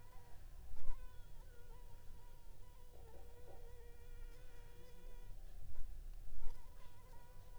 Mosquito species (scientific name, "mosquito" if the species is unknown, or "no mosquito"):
Anopheles funestus s.l.